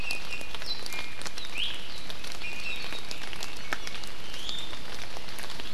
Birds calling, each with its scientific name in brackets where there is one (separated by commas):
Warbling White-eye (Zosterops japonicus), Iiwi (Drepanis coccinea)